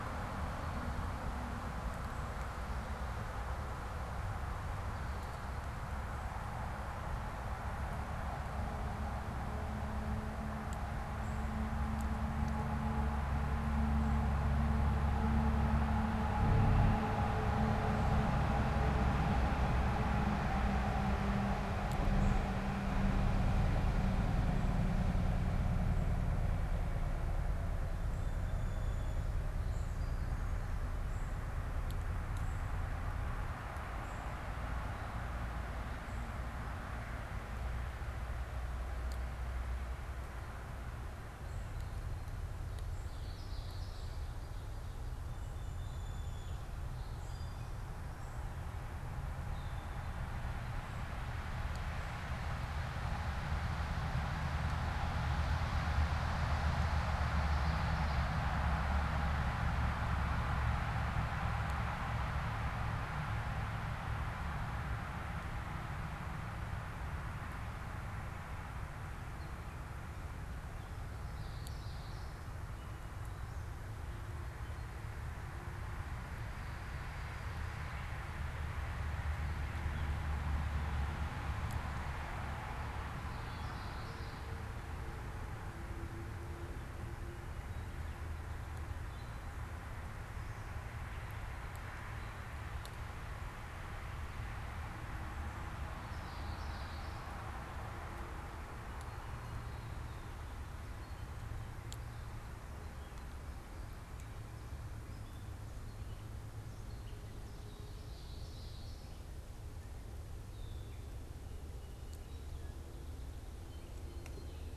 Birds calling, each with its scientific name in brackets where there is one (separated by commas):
unidentified bird, Common Yellowthroat (Geothlypis trichas)